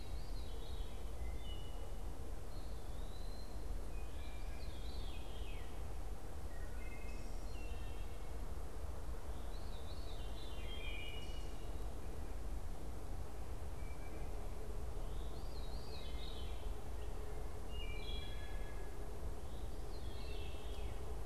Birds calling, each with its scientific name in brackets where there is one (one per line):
Wood Thrush (Hylocichla mustelina)
Eastern Wood-Pewee (Contopus virens)
Veery (Catharus fuscescens)